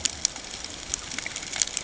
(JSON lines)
{"label": "ambient", "recorder": "HydroMoth"}